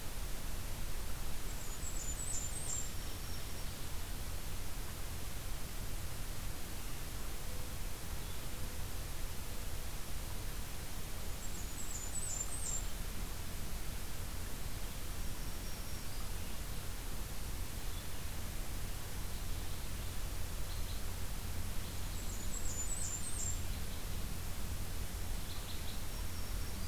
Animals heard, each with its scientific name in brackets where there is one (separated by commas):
Red Crossbill (Loxia curvirostra), Black-throated Green Warbler (Setophaga virens), Blackburnian Warbler (Setophaga fusca)